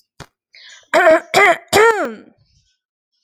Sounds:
Throat clearing